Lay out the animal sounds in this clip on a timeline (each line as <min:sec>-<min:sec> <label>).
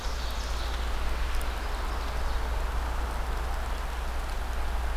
0:00.0-0:02.7 Ovenbird (Seiurus aurocapilla)